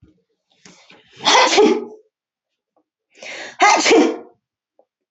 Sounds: Sneeze